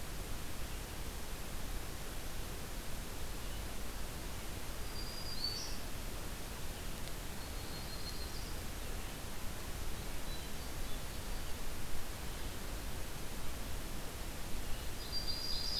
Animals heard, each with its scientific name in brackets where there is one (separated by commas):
Yellow-rumped Warbler (Setophaga coronata), Hermit Thrush (Catharus guttatus), Ovenbird (Seiurus aurocapilla), Red-eyed Vireo (Vireo olivaceus), Black-throated Green Warbler (Setophaga virens)